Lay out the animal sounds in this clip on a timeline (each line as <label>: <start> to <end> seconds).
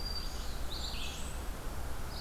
Red-eyed Vireo (Vireo olivaceus): 0.0 to 2.2 seconds
Blackburnian Warbler (Setophaga fusca): 0.3 to 1.6 seconds